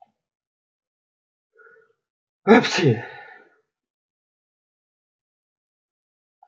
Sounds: Sneeze